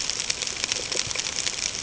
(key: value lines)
label: ambient
recorder: HydroMoth